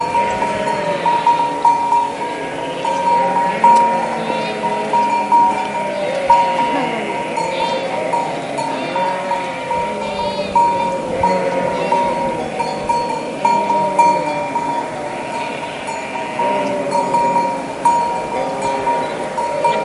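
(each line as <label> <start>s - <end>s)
A bell is ringing. 0.0s - 1.3s
A flock of lambs bleating. 0.1s - 19.8s
A bell is ringing continuously. 1.4s - 19.8s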